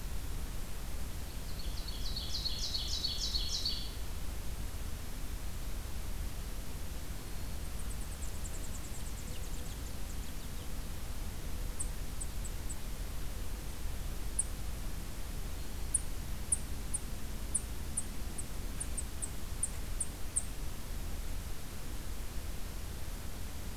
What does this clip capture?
Ovenbird, Black-throated Green Warbler, unidentified call, American Goldfinch